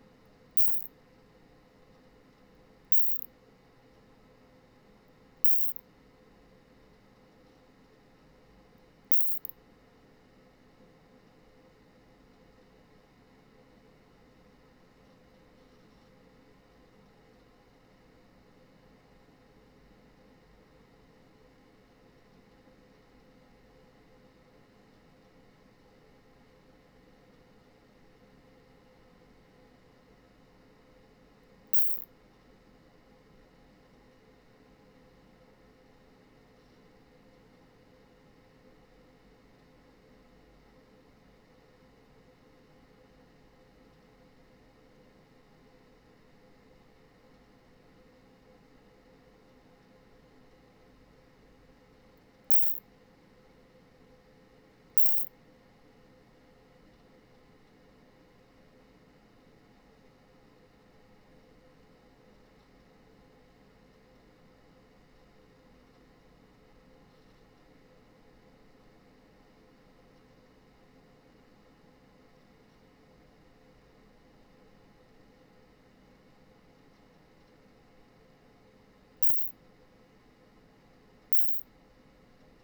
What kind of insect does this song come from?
orthopteran